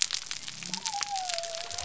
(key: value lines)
label: biophony
recorder: SoundTrap 300